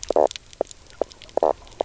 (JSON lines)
{"label": "biophony, knock croak", "recorder": "SoundTrap 300"}